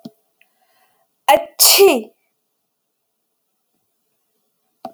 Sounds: Sneeze